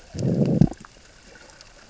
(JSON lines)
{"label": "biophony, growl", "recorder": "SoundTrap 600 or HydroMoth"}